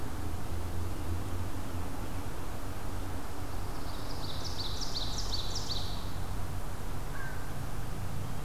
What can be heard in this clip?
Ovenbird, American Crow